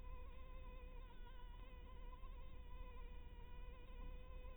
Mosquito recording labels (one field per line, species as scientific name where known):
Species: Anopheles harrisoni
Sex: female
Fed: blood-fed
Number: one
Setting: cup